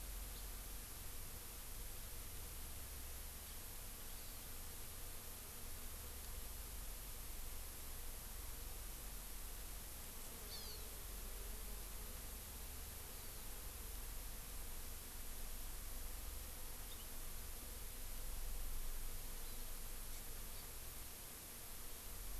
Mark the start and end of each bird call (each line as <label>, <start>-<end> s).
House Finch (Haemorhous mexicanus), 0.3-0.4 s
Hawaii Amakihi (Chlorodrepanis virens), 4.1-4.4 s
Hawaii Amakihi (Chlorodrepanis virens), 10.5-10.8 s
Hawaii Amakihi (Chlorodrepanis virens), 13.1-13.4 s
Hawaii Amakihi (Chlorodrepanis virens), 19.4-19.6 s
Hawaii Amakihi (Chlorodrepanis virens), 20.5-20.6 s